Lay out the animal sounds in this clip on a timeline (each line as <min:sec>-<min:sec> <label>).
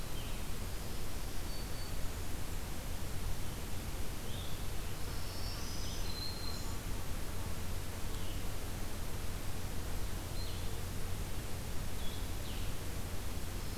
0:00.0-0:08.5 Blue-headed Vireo (Vireo solitarius)
0:00.8-0:02.3 Black-throated Green Warbler (Setophaga virens)
0:05.0-0:06.9 Black-throated Green Warbler (Setophaga virens)
0:10.2-0:13.8 Blue-headed Vireo (Vireo solitarius)